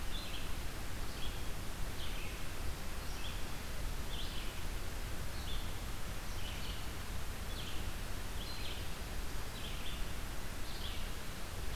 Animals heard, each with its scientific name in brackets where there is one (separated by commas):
Red-eyed Vireo (Vireo olivaceus)